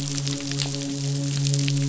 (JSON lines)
{"label": "biophony, midshipman", "recorder": "SoundTrap 500"}